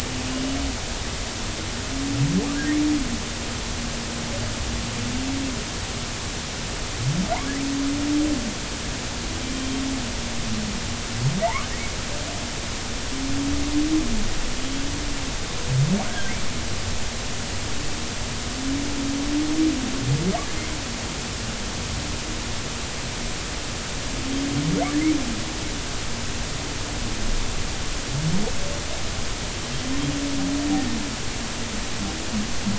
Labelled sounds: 9.5	9.8	humpback whale, 3.1 to 3.2 kHz
16.1	16.3	humpback whale, 1.5 to 1.7 kHz

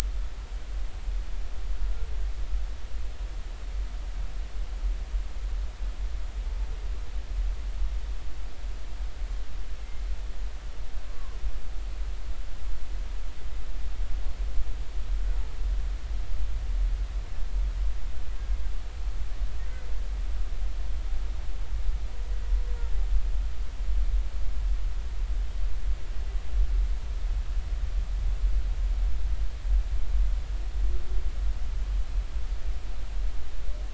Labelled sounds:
11.1	11.4	humpback whale, 0.99 to 1.2 kHz

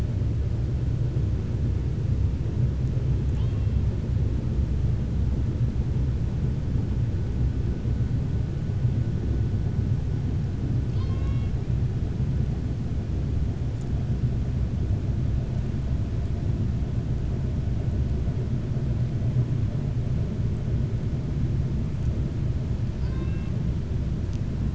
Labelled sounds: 3.2	3.7	killer whale, 0.87 to 4.4 kHz
10.8	11.6	killer whale, 1.0 to 5.9 kHz

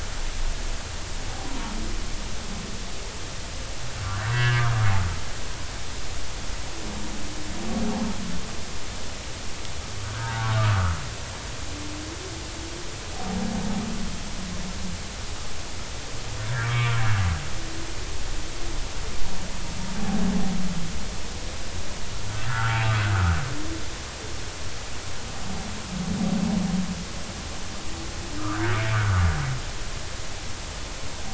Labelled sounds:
4.2	4.8	humpback whale, 1.0 to 2.0 kHz
10.0	10.9	humpback whale, 0.80 to 1.7 kHz
16.6	17.0	humpback whale, 1.1 to 2.4 kHz
22.4	23.4	humpback whale, 1.1 to 1.9 kHz
28.4	29.3	humpback whale, 1.1 to 1.6 kHz

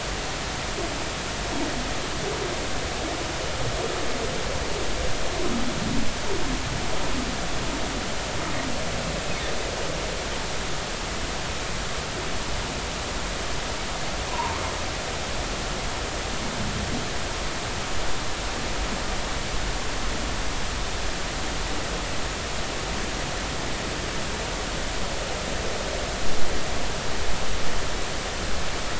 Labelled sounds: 14.3	14.6	humpback whale, 0.86 to 1.1 kHz

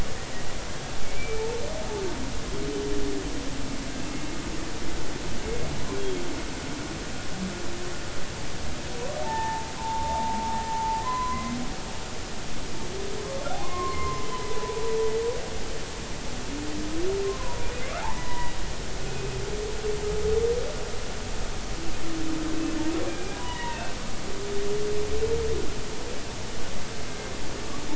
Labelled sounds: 1.0	1.4	humpback whale, 2.2 to 2.4 kHz
9.2	10.4	humpback whale, 0.80 to 1.9 kHz
10.7	11.6	humpback whale, 0.83 to 2.1 kHz
13.6	14.8	humpback whale, 0.93 to 2.2 kHz
17.2	17.7	humpback whale, 0.90 to 1.1 kHz
18.0	19.4	humpback whale, 0.80 to 2.6 kHz
23.1	24.0	humpback whale, 0.86 to 3.0 kHz

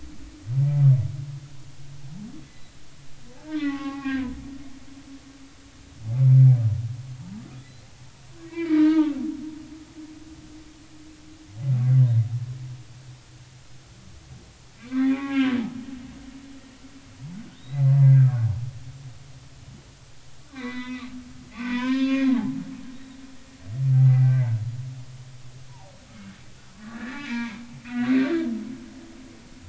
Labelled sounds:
2.5	2.8	humpback whale, 2.0 to 4.1 kHz
3.5	4.4	humpback whale, 0.80 to 3.1 kHz
8.4	9.2	humpback whale, 0.83 to 2.4 kHz
14.8	15.6	humpback whale, 0.80 to 3.6 kHz
17.5	18.2	humpback whale, 0.93 to 4.3 kHz
20.5	21.1	humpback whale, 0.93 to 4.1 kHz
21.5	22.6	humpback whale, 0.80 to 5.1 kHz
23.9	24.3	humpback whale, 0.80 to 2.1 kHz
25.1	25.9	humpback whale, 0.80 to 2.4 kHz
26.7	27.6	humpback whale, 0.86 to 2.4 kHz

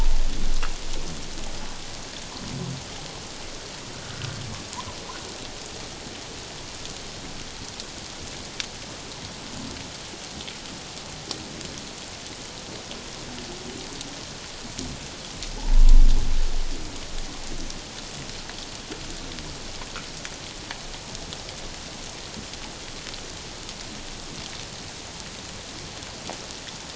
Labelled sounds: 15.6	15.8	humpback whale, 0.78 to 1.0 kHz

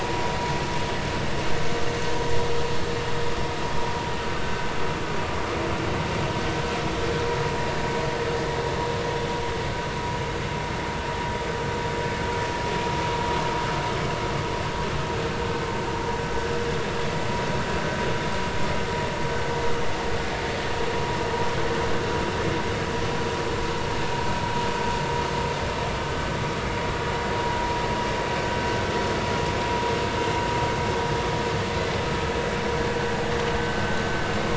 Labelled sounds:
4.4	4.7	vessel noise, 1.4 to 1.6 kHz

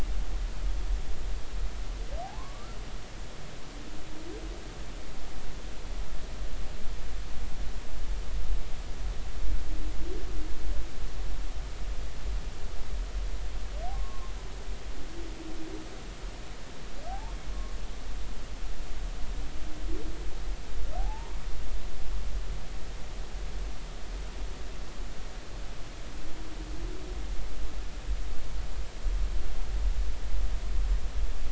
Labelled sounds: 2.2	2.8	humpback whale, 0.80 to 1.4 kHz
13.9	14.3	humpback whale, 0.99 to 1.2 kHz
17.1	17.4	humpback whale, 0.80 to 1.1 kHz
21.0	21.4	humpback whale, 0.80 to 1.1 kHz

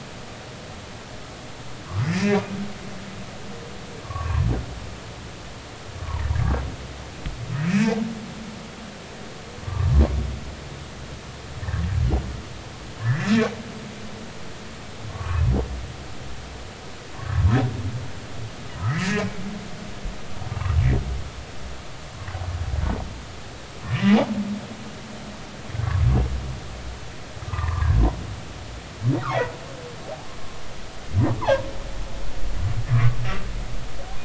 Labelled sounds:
1.9	2.4	humpback whale, 1.6 to 5.0 kHz
4.0	4.5	humpback whale, 0.90 to 1.2 kHz
6.3	6.6	humpback whale, 1.5 to 1.8 kHz
7.7	8.0	humpback whale, 2.2 to 2.7 kHz
9.6	9.9	humpback whale, 0.86 to 1.2 kHz
13.0	13.5	humpback whale, 1.5 to 2.6 kHz
15.1	15.4	humpback whale, 1.0 to 1.3 kHz
17.1	17.5	humpback whale, 0.96 to 1.2 kHz
18.9	19.4	humpback whale, 1.6 to 2.8 kHz
23.8	24.2	humpback whale, 1.7 to 2.0 kHz
27.5	28.0	humpback whale, 0.86 to 1.2 kHz

